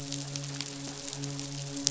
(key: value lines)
label: biophony, midshipman
recorder: SoundTrap 500